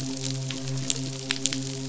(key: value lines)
label: biophony, midshipman
recorder: SoundTrap 500